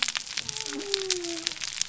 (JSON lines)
{"label": "biophony", "recorder": "SoundTrap 300"}